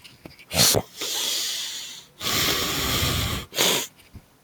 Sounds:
Sniff